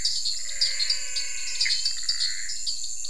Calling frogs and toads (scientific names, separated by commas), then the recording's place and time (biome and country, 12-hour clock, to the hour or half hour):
Dendropsophus nanus, Physalaemus albonotatus, Pithecopus azureus
Cerrado, Brazil, 7:30pm